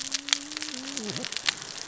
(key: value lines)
label: biophony, cascading saw
recorder: SoundTrap 600 or HydroMoth